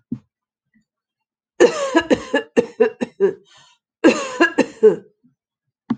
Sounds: Cough